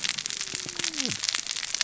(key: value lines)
label: biophony, cascading saw
recorder: SoundTrap 600 or HydroMoth